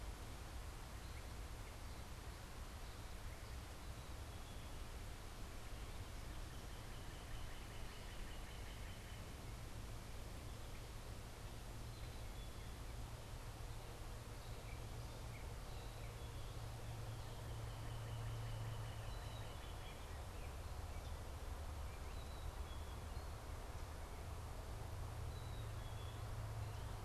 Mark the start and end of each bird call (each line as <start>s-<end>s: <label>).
5.9s-9.3s: Northern Cardinal (Cardinalis cardinalis)
11.8s-13.0s: Black-capped Chickadee (Poecile atricapillus)
14.0s-16.6s: Gray Catbird (Dumetella carolinensis)
16.9s-20.2s: Northern Cardinal (Cardinalis cardinalis)
19.1s-26.2s: Black-capped Chickadee (Poecile atricapillus)